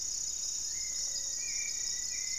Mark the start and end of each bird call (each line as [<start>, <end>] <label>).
[0.00, 1.56] Gray-fronted Dove (Leptotila rufaxilla)
[0.00, 2.38] Hauxwell's Thrush (Turdus hauxwelli)
[0.56, 2.38] Rufous-fronted Antthrush (Formicarius rufifrons)